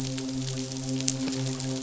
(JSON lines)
{"label": "biophony, midshipman", "recorder": "SoundTrap 500"}